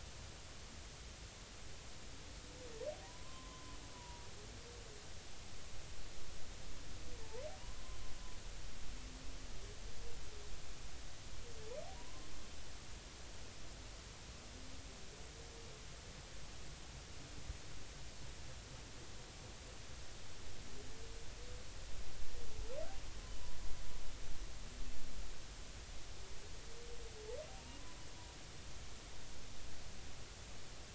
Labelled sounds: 3.0	4.3	humpback whale, 0.90 to 1.1 kHz
11.9	12.3	humpback whale, 0.90 to 1.1 kHz

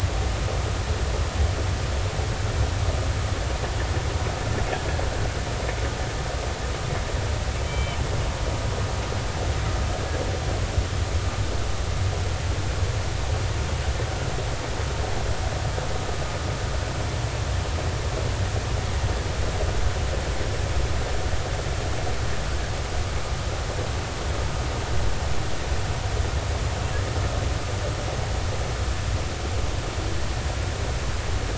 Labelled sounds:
7.6	8.0	humpback whale, 2.2 to 3.2 kHz

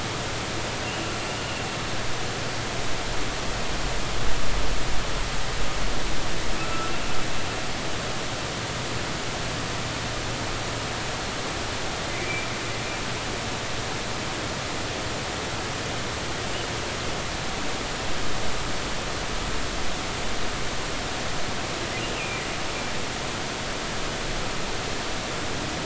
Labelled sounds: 0.8	1.1	humpback whale, 2.7 to 2.9 kHz
6.6	6.9	humpback whale, 1.3 to 1.5 kHz
12.1	12.5	humpback whale, 2.0 to 2.5 kHz
22.1	22.4	humpback whale, 2.3 to 2.9 kHz

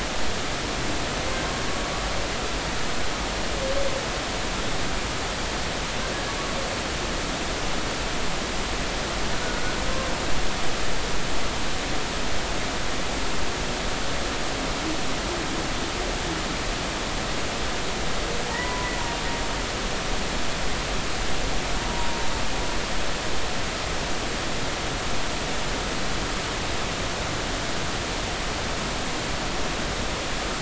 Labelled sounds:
18.5	18.9	humpback whale, 0.80 to 2.0 kHz

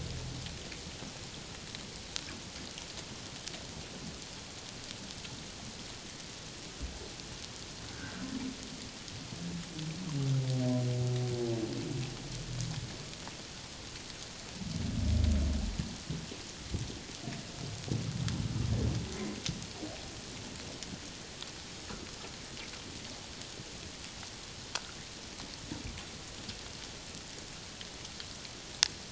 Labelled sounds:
7.9	8.2	humpback whale, 1.4 to 1.7 kHz

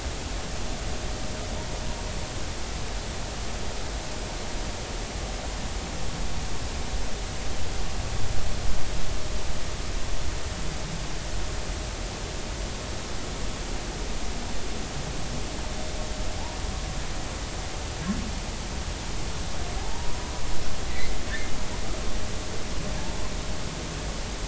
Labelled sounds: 19.8	20.3	humpback whale, 0.80 to 1.1 kHz
20.9	21.1	humpback whale, 1.9 to 2.4 kHz

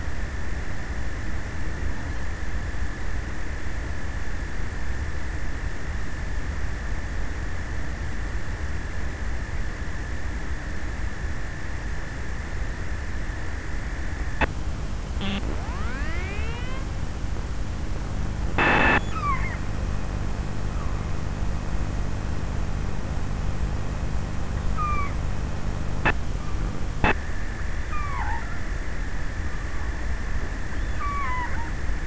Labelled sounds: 23.8	25.5	killer whale, offshore, 0.63 to 5.1 kHz
27.5	29.0	killer whale, offshore, 0.16 to 7.5 kHz
30.3	32.0	killer whale, offshore, 0.32 to 6.8 kHz

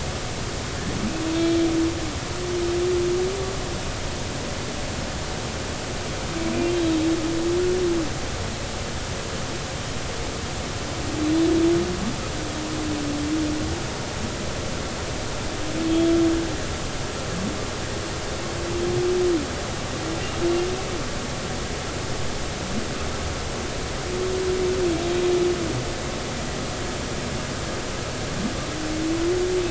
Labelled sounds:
1.3	1.6	humpback whale, 3.6 to 3.7 kHz
15.9	16.1	humpback whale, 3.2 to 3.4 kHz

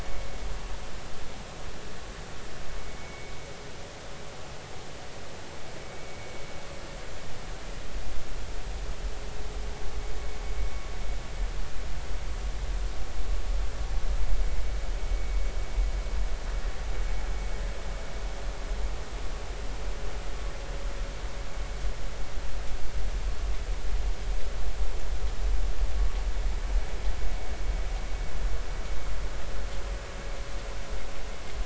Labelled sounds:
3.0	3.3	vessel noise, 2.1 to 2.4 kHz

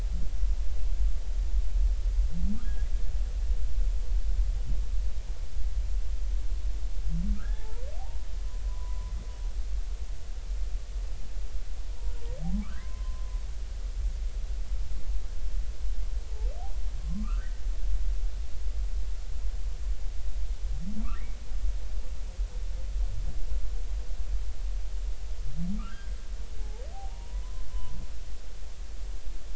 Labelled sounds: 7.3	7.8	humpback whale, 0.83 to 1.9 kHz
8.7	9.1	humpback whale, 0.93 to 1.1 kHz
12.5	13.4	humpback whale, 0.96 to 1.7 kHz
17.0	17.6	humpback whale, 1.0 to 2.0 kHz
26.6	28.0	humpback whale, 0.80 to 1.1 kHz

